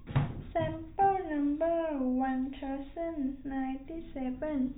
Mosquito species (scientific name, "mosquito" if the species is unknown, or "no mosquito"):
no mosquito